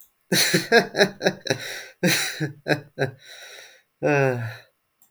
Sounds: Laughter